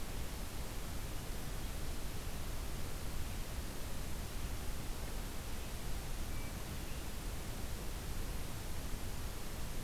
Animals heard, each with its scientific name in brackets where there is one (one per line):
Hermit Thrush (Catharus guttatus)